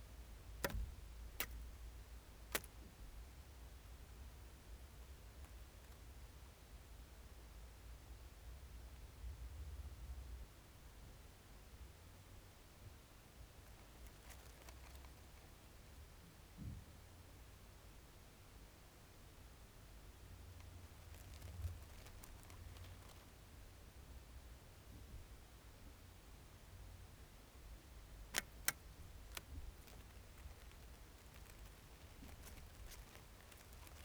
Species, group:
Euthystira brachyptera
Orthoptera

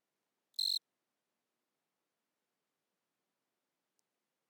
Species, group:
Eugryllodes pipiens
Orthoptera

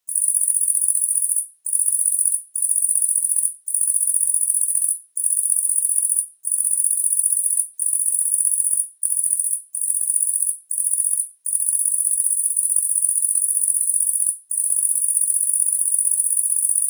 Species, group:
Tettigonia viridissima
Orthoptera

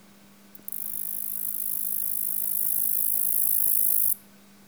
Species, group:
Orchelimum nigripes
Orthoptera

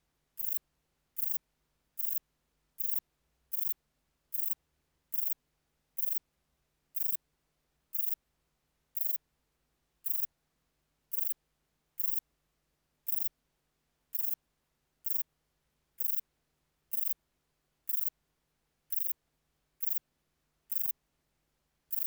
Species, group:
Rhacocleis poneli
Orthoptera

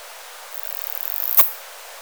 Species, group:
Poecilimon obesus
Orthoptera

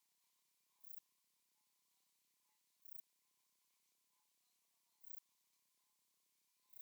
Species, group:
Pterolepis spoliata
Orthoptera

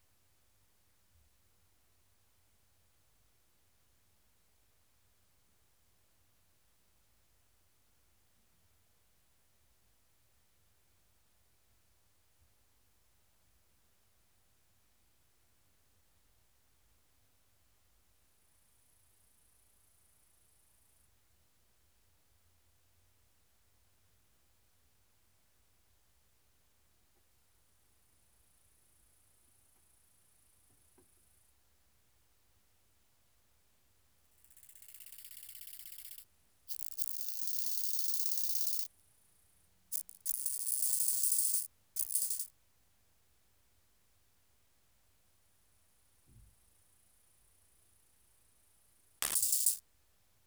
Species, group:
Chorthippus biguttulus
Orthoptera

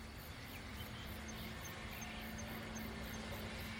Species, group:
Ornebius kanetataki
Orthoptera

